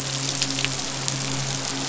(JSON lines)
{"label": "biophony, midshipman", "recorder": "SoundTrap 500"}